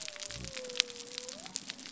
{"label": "biophony", "recorder": "SoundTrap 300"}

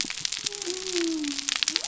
{"label": "biophony", "recorder": "SoundTrap 300"}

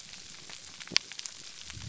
{"label": "biophony", "recorder": "SoundTrap 300"}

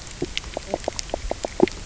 {"label": "biophony, knock croak", "recorder": "SoundTrap 300"}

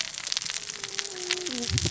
{"label": "biophony, cascading saw", "recorder": "SoundTrap 600 or HydroMoth"}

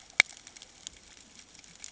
{"label": "ambient", "recorder": "HydroMoth"}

